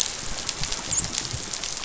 {"label": "biophony, dolphin", "recorder": "SoundTrap 500"}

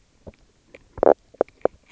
{"label": "biophony, knock croak", "recorder": "SoundTrap 300"}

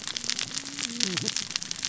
{"label": "biophony, cascading saw", "recorder": "SoundTrap 600 or HydroMoth"}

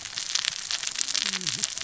{"label": "biophony, cascading saw", "recorder": "SoundTrap 600 or HydroMoth"}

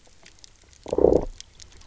{"label": "biophony", "recorder": "SoundTrap 300"}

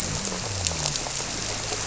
{"label": "biophony", "recorder": "SoundTrap 300"}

